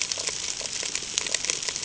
{"label": "ambient", "recorder": "HydroMoth"}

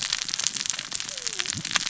{"label": "biophony, cascading saw", "recorder": "SoundTrap 600 or HydroMoth"}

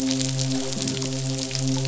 {"label": "biophony, midshipman", "recorder": "SoundTrap 500"}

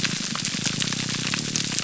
{"label": "biophony, grouper groan", "recorder": "SoundTrap 300"}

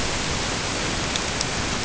{"label": "ambient", "recorder": "HydroMoth"}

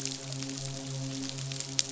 {"label": "biophony, midshipman", "recorder": "SoundTrap 500"}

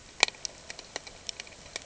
{"label": "ambient", "recorder": "HydroMoth"}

